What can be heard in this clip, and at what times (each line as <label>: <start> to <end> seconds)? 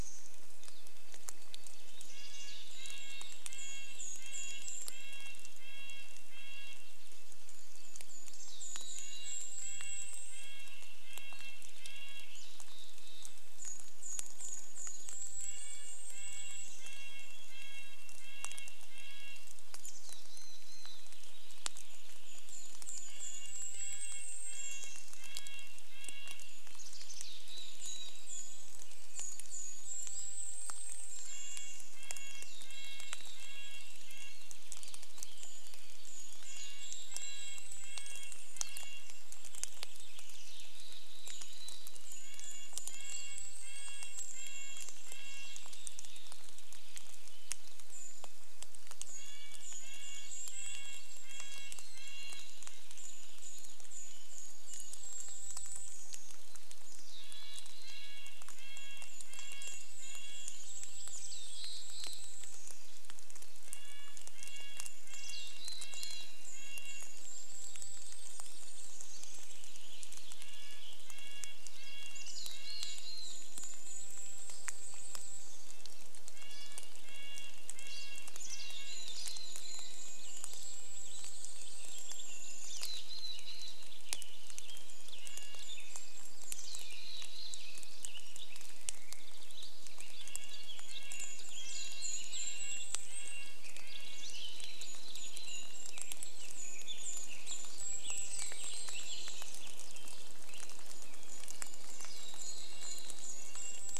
Golden-crowned Kinglet song: 0 to 18 seconds
rain: 0 to 104 seconds
Mountain Chickadee call: 2 to 4 seconds
Red-breasted Nuthatch song: 2 to 80 seconds
Mountain Chickadee call: 8 to 10 seconds
Mountain Chickadee call: 12 to 14 seconds
warbler song: 14 to 16 seconds
Mountain Chickadee call: 18 to 22 seconds
Purple Finch song: 20 to 24 seconds
Golden-crowned Kinglet song: 22 to 34 seconds
Mountain Chickadee call: 26 to 30 seconds
warbler song: 28 to 30 seconds
Purple Finch song: 28 to 32 seconds
Mountain Chickadee call: 32 to 34 seconds
Purple Finch song: 34 to 42 seconds
Mountain Chickadee call: 36 to 38 seconds
Golden-crowned Kinglet song: 36 to 46 seconds
Mountain Chickadee call: 40 to 42 seconds
warbler song: 48 to 50 seconds
Purple Finch song: 48 to 56 seconds
Golden-crowned Kinglet song: 48 to 70 seconds
Mountain Chickadee call: 50 to 54 seconds
Mountain Chickadee call: 56 to 68 seconds
Purple Finch song: 60 to 62 seconds
warbler song: 66 to 70 seconds
Purple Finch song: 68 to 72 seconds
Mountain Chickadee call: 72 to 74 seconds
Golden-crowned Kinglet song: 72 to 76 seconds
Mountain Chickadee call: 78 to 80 seconds
Purple Finch song: 78 to 84 seconds
Golden-crowned Kinglet song: 78 to 88 seconds
Mountain Chickadee call: 82 to 84 seconds
Red-breasted Nuthatch song: 84 to 86 seconds
American Robin song: 84 to 102 seconds
Mountain Chickadee call: 86 to 88 seconds
Red-breasted Nuthatch song: 88 to 96 seconds
Mountain Chickadee call: 90 to 96 seconds
Golden-crowned Kinglet song: 90 to 104 seconds
Mountain Chickadee call: 98 to 100 seconds
Red-breasted Nuthatch song: 100 to 104 seconds
Mountain Chickadee call: 102 to 104 seconds